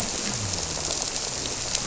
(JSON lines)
{"label": "biophony", "recorder": "SoundTrap 300"}